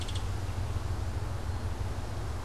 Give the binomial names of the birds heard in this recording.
Megaceryle alcyon